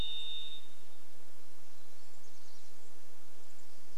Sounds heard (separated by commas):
Chestnut-backed Chickadee call, insect buzz